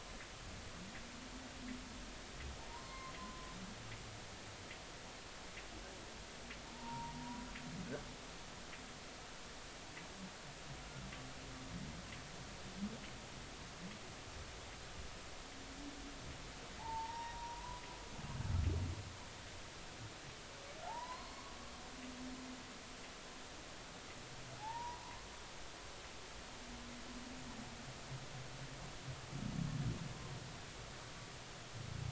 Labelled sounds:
2.7	3.5	humpback whale, 0.86 to 1.1 kHz
6.7	7.5	humpback whale, 0.86 to 1.0 kHz
16.8	17.8	humpback whale, 0.80 to 3.8 kHz
20.9	21.5	humpback whale, 0.80 to 4.4 kHz
24.6	25.3	humpback whale, 0.80 to 1.1 kHz

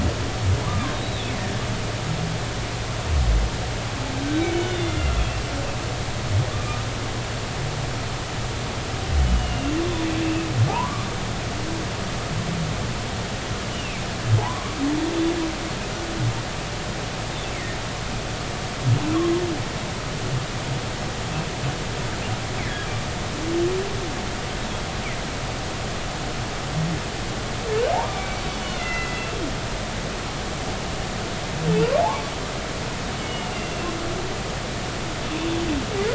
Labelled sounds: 0.7	1.3	humpback whale, 1.0 to 4.0 kHz
4.4	5.1	humpback whale, 2.0 to 6.1 kHz
9.3	9.8	humpback whale, 2.7 to 3.0 kHz
10.7	11.1	humpback whale, 0.80 to 1.2 kHz
13.7	14.0	humpback whale, 2.4 to 3.0 kHz
14.4	14.8	humpback whale, 0.80 to 1.2 kHz
27.9	29.3	humpback whale, 0.80 to 3.0 kHz
32.0	32.2	humpback whale, 0.80 to 1.2 kHz
33.2	33.9	humpback whale, 2.1 to 3.0 kHz

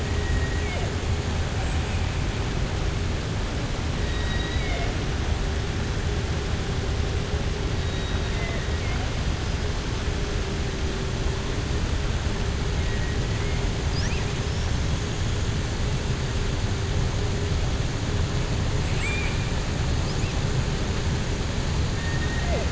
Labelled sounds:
4.0	4.9	killer whale, southern resident, 0.47 to 4.9 kHz
18.8	19.4	killer whale, southern resident, 1.6 to 3.7 kHz

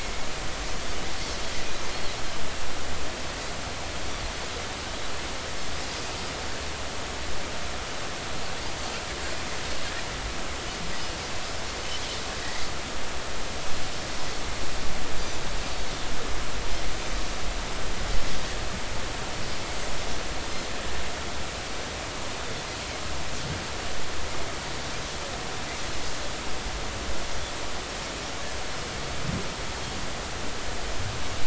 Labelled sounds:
12.4	12.6	Pacific white-sided dolphin, 1.8 to 2.1 kHz

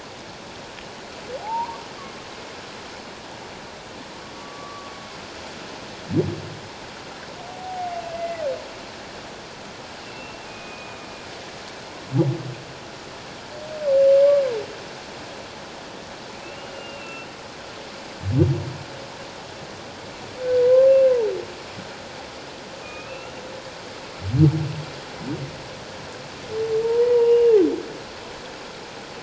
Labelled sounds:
1.4	1.8	humpback whale, 0.78 to 1.2 kHz
4.3	4.9	humpback whale, 1.1 to 1.2 kHz
7.5	8.4	humpback whale, 0.78 to 2.8 kHz
10.0	11.1	humpback whale, 2.4 to 2.8 kHz
16.4	17.3	humpback whale, 2.5 to 2.9 kHz
22.8	23.4	humpback whale, 1.2 to 2.9 kHz
26.8	27.6	humpback whale, 0.88 to 2.9 kHz

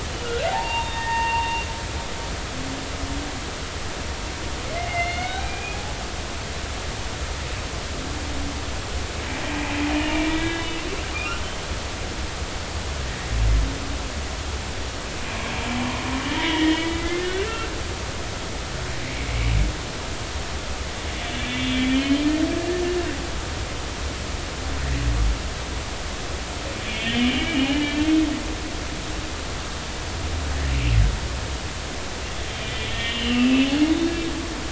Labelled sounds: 0.1	1.7	humpback whale, 0.80 to 3.8 kHz
4.8	5.8	humpback whale, 1.4 to 4.4 kHz
9.9	10.8	humpback whale, 1.6 to 3.7 kHz
16.3	17.7	humpback whale, 0.90 to 2.9 kHz
21.4	22.2	humpback whale, 2.7 to 3.6 kHz
26.9	27.9	humpback whale, 0.80 to 3.4 kHz
32.9	33.7	humpback whale, 1.8 to 3.4 kHz

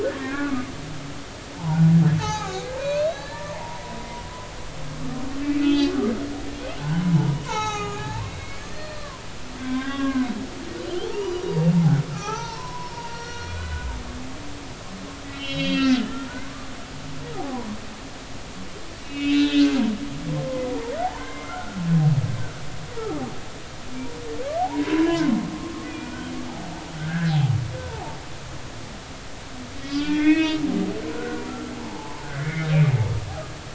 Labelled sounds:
0.2	0.7	humpback whale, 1.1 to 1.8 kHz
1.6	3.8	humpback whale, 0.80 to 6.6 kHz
5.6	5.9	humpback whale, 2.5 to 4.1 kHz
6.8	9.1	humpback whale, 0.80 to 6.8 kHz
9.6	10.3	humpback whale, 0.99 to 3.7 kHz
11.0	11.5	humpback whale, 0.80 to 6.0 kHz
12.1	13.9	humpback whale, 0.80 to 6.2 kHz
15.3	16.3	humpback whale, 1.4 to 5.5 kHz
17.4	17.6	humpback whale, 0.80 to 0.90 kHz
19.0	21.8	humpback whale, 0.80 to 4.1 kHz
23.0	23.2	humpback whale, 1.1 to 1.4 kHz
24.6	26.3	humpback whale, 0.80 to 2.5 kHz
27.0	27.3	humpback whale, 1.4 to 1.9 kHz
27.8	28.2	humpback whale, 0.80 to 1.1 kHz
29.8	30.6	humpback whale, 1.2 to 3.6 kHz
31.1	31.4	humpback whale, 1.3 to 1.6 kHz
31.7	32.7	humpback whale, 0.80 to 2.3 kHz

